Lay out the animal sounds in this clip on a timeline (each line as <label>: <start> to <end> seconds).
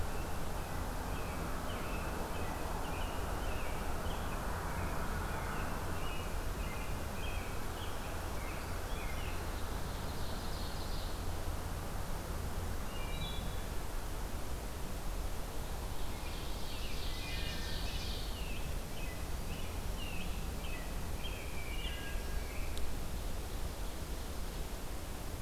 American Robin (Turdus migratorius): 0.0 to 9.4 seconds
Ovenbird (Seiurus aurocapilla): 9.5 to 11.4 seconds
Wood Thrush (Hylocichla mustelina): 12.8 to 13.6 seconds
Ovenbird (Seiurus aurocapilla): 15.7 to 18.7 seconds
Wood Thrush (Hylocichla mustelina): 17.0 to 17.8 seconds
American Robin (Turdus migratorius): 18.3 to 22.8 seconds
Wood Thrush (Hylocichla mustelina): 21.8 to 22.5 seconds